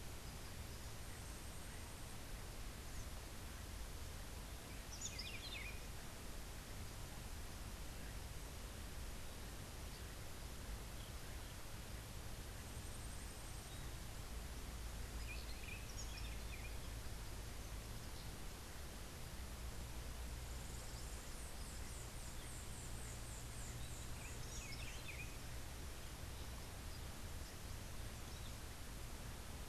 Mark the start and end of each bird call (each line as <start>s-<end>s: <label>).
4.3s-6.2s: Buff-throated Saltator (Saltator maximus)
20.4s-24.7s: White-eared Ground-Sparrow (Melozone leucotis)
23.7s-25.6s: Buff-throated Saltator (Saltator maximus)